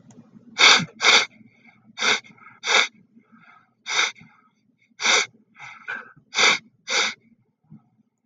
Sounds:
Sniff